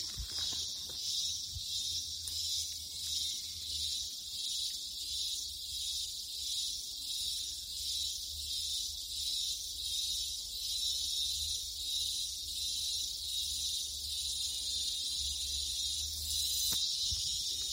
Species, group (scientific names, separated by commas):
Psaltoda plaga, Cicadidae